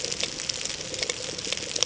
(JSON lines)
{"label": "ambient", "recorder": "HydroMoth"}